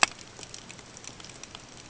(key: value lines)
label: ambient
recorder: HydroMoth